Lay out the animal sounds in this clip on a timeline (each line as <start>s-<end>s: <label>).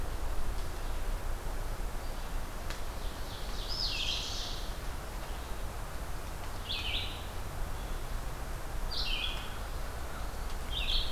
2.9s-4.7s: Ovenbird (Seiurus aurocapilla)
3.6s-11.1s: Red-eyed Vireo (Vireo olivaceus)